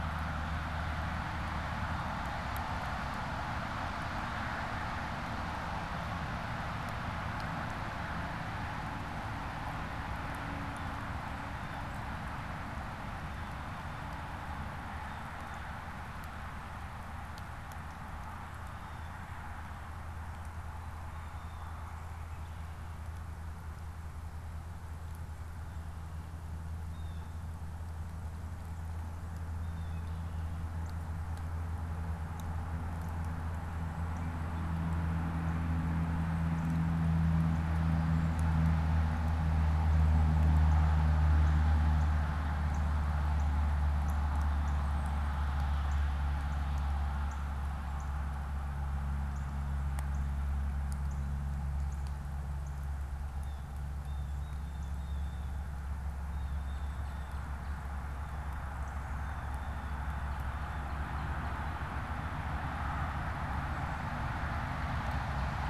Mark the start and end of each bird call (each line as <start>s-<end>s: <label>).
10.5s-16.1s: Blue Jay (Cyanocitta cristata)
18.5s-19.2s: Blue Jay (Cyanocitta cristata)
20.8s-21.7s: Blue Jay (Cyanocitta cristata)
26.5s-27.4s: Blue Jay (Cyanocitta cristata)
29.5s-30.1s: Blue Jay (Cyanocitta cristata)
29.8s-30.6s: Red-winged Blackbird (Agelaius phoeniceus)
40.4s-53.0s: Northern Cardinal (Cardinalis cardinalis)
53.2s-61.0s: Blue Jay (Cyanocitta cristata)